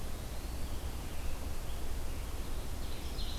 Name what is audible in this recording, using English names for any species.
Eastern Wood-Pewee, Scarlet Tanager, Ovenbird